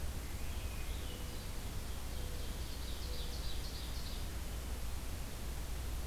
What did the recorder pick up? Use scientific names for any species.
Catharus ustulatus, Zenaida macroura, Seiurus aurocapilla